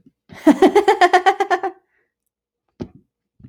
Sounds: Laughter